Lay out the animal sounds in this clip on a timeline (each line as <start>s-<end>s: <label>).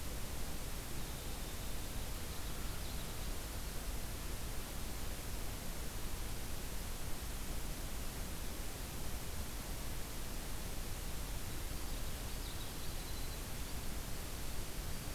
0.8s-2.3s: Winter Wren (Troglodytes hiemalis)
1.9s-3.4s: Common Yellowthroat (Geothlypis trichas)
11.8s-12.9s: Common Yellowthroat (Geothlypis trichas)
12.4s-15.2s: Winter Wren (Troglodytes hiemalis)